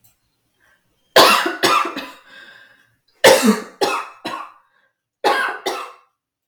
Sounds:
Cough